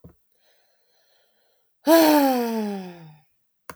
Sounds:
Sigh